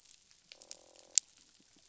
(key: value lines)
label: biophony, croak
recorder: SoundTrap 500